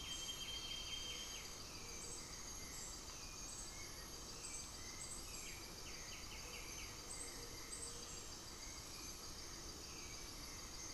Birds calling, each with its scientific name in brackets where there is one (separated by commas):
White-winged Becard (Pachyramphus polychopterus), Gray-fronted Dove (Leptotila rufaxilla)